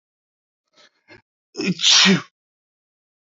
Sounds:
Sneeze